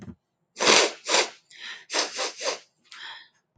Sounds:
Sniff